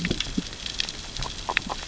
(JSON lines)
{"label": "biophony, grazing", "recorder": "SoundTrap 600 or HydroMoth"}